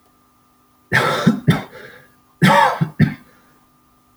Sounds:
Cough